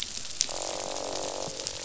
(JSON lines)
{"label": "biophony, croak", "recorder": "SoundTrap 500"}